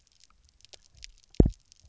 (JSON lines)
{"label": "biophony, double pulse", "recorder": "SoundTrap 300"}